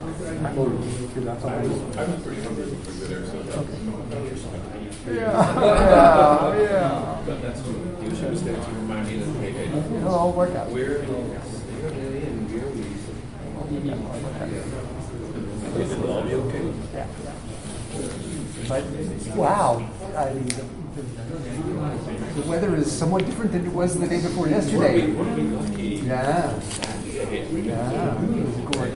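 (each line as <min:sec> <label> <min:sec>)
0:00.0 Several groups of people have overlapping conversations. 0:28.9
0:05.5 People laughing. 0:06.7
0:20.4 A loud click. 0:20.7
0:26.7 A loud clattering sound. 0:27.0
0:28.7 A loud click. 0:28.8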